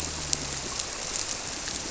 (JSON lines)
{"label": "biophony", "recorder": "SoundTrap 300"}